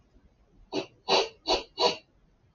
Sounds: Sniff